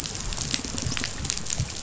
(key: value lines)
label: biophony, dolphin
recorder: SoundTrap 500